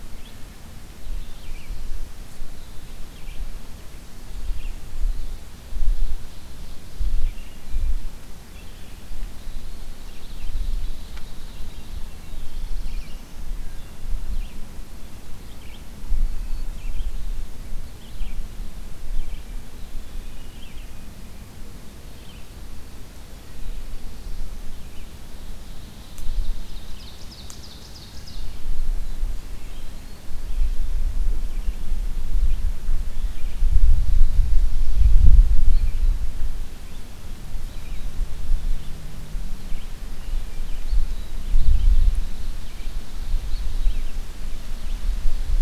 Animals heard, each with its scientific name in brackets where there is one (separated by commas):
Ovenbird (Seiurus aurocapilla), Hermit Thrush (Catharus guttatus), Eastern Wood-Pewee (Contopus virens), Black-and-white Warbler (Mniotilta varia), Black-throated Blue Warbler (Setophaga caerulescens), Red-eyed Vireo (Vireo olivaceus)